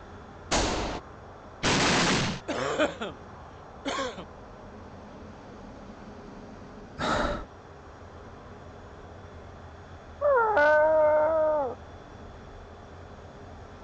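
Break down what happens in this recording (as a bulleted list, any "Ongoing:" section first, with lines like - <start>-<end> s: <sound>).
- 0.51-1.01 s: gunfire can be heard
- 1.62-2.42 s: the sound of an explosion
- 2.47-4.25 s: someone coughs
- 6.96-7.46 s: you can hear breathing
- 10.19-11.75 s: a dog is heard
- an unchanging background noise lies about 20 dB below the sounds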